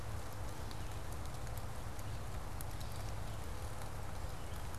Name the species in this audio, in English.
Gray Catbird, Red-eyed Vireo